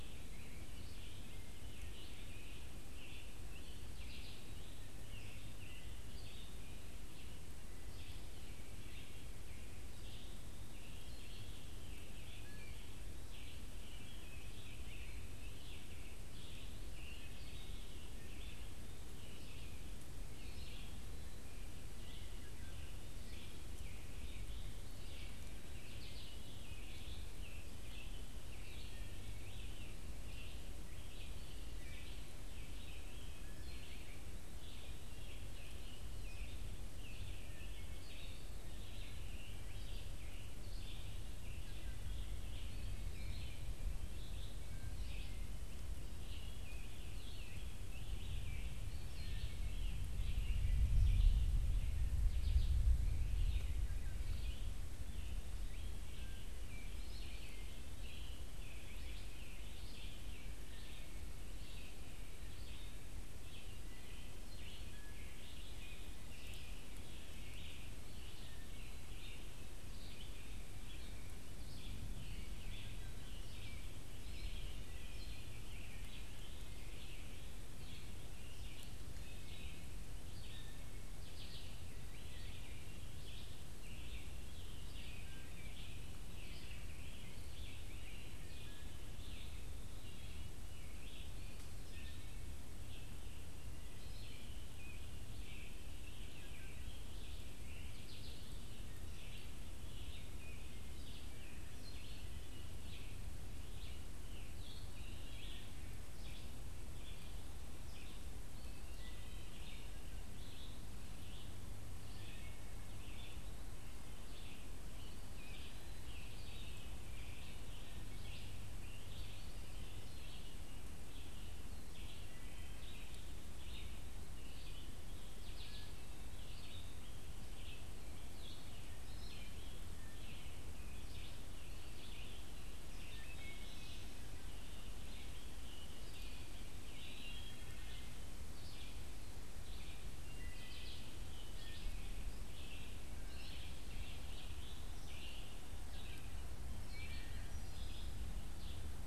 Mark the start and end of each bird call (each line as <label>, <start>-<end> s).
Scarlet Tanager (Piranga olivacea), 0.0-6.9 s
Red-eyed Vireo (Vireo olivaceus), 0.0-149.1 s
Scarlet Tanager (Piranga olivacea), 11.6-70.3 s
Eastern Wood-Pewee (Contopus virens), 20.4-21.5 s
Wood Thrush (Hylocichla mustelina), 21.9-23.1 s
Wood Thrush (Hylocichla mustelina), 33.1-34.1 s
Wood Thrush (Hylocichla mustelina), 37.4-38.3 s
Wood Thrush (Hylocichla mustelina), 41.5-42.2 s
Wood Thrush (Hylocichla mustelina), 44.4-45.7 s
Wood Thrush (Hylocichla mustelina), 48.9-50.0 s
Wood Thrush (Hylocichla mustelina), 53.8-54.4 s
Wood Thrush (Hylocichla mustelina), 56.0-69.4 s
unidentified bird, 70.9-80.2 s
Wood Thrush (Hylocichla mustelina), 79.1-83.5 s
Wood Thrush (Hylocichla mustelina), 84.7-92.7 s
Wood Thrush (Hylocichla mustelina), 96.1-97.1 s
Wood Thrush (Hylocichla mustelina), 108.5-110.1 s
Wood Thrush (Hylocichla mustelina), 112.1-113.1 s
Wood Thrush (Hylocichla mustelina), 122.1-123.1 s
Wood Thrush (Hylocichla mustelina), 133.1-134.1 s
Wood Thrush (Hylocichla mustelina), 137.0-138.5 s
Wood Thrush (Hylocichla mustelina), 140.1-142.4 s
Wood Thrush (Hylocichla mustelina), 145.7-148.2 s